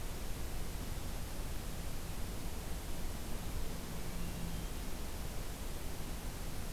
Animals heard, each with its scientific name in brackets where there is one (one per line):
Hermit Thrush (Catharus guttatus)